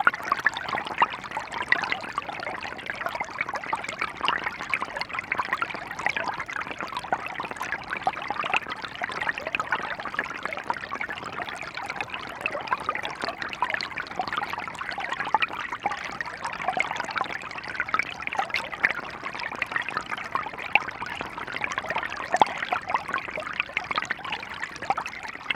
Does someone squeak a rubber duck?
no